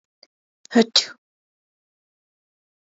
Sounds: Sneeze